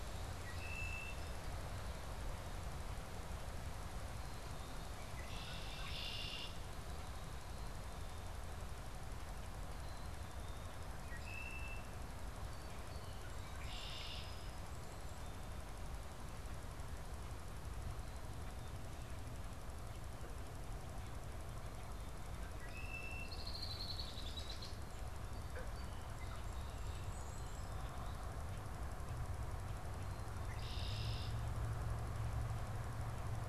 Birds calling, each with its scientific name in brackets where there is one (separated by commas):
Red-winged Blackbird (Agelaius phoeniceus), Black-capped Chickadee (Poecile atricapillus), Song Sparrow (Melospiza melodia)